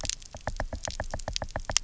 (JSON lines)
{"label": "biophony, knock", "recorder": "SoundTrap 300"}